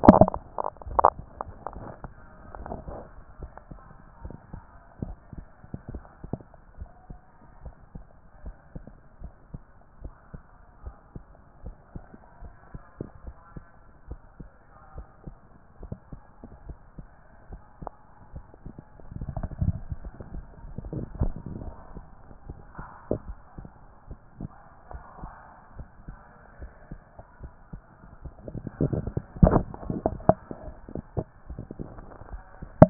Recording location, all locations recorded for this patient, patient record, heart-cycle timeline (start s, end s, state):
tricuspid valve (TV)
aortic valve (AV)+pulmonary valve (PV)+tricuspid valve (TV)+mitral valve (MV)
#Age: nan
#Sex: Female
#Height: nan
#Weight: nan
#Pregnancy status: True
#Murmur: Absent
#Murmur locations: nan
#Most audible location: nan
#Systolic murmur timing: nan
#Systolic murmur shape: nan
#Systolic murmur grading: nan
#Systolic murmur pitch: nan
#Systolic murmur quality: nan
#Diastolic murmur timing: nan
#Diastolic murmur shape: nan
#Diastolic murmur grading: nan
#Diastolic murmur pitch: nan
#Diastolic murmur quality: nan
#Outcome: Normal
#Campaign: 2014 screening campaign
0.00	6.54	unannotated
6.54	6.78	diastole
6.78	6.90	S1
6.90	7.08	systole
7.08	7.18	S2
7.18	7.64	diastole
7.64	7.74	S1
7.74	7.94	systole
7.94	8.04	S2
8.04	8.44	diastole
8.44	8.56	S1
8.56	8.74	systole
8.74	8.84	S2
8.84	9.22	diastole
9.22	9.32	S1
9.32	9.52	systole
9.52	9.62	S2
9.62	10.02	diastole
10.02	10.14	S1
10.14	10.32	systole
10.32	10.42	S2
10.42	10.84	diastole
10.84	10.96	S1
10.96	11.14	systole
11.14	11.24	S2
11.24	11.64	diastole
11.64	11.76	S1
11.76	11.94	systole
11.94	12.04	S2
12.04	12.42	diastole
12.42	32.90	unannotated